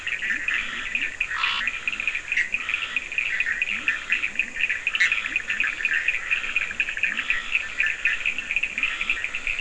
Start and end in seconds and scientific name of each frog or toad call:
0.0	9.6	Boana bischoffi
0.0	9.6	Scinax perereca
0.0	9.6	Sphaenorhynchus surdus
0.2	9.6	Leptodactylus latrans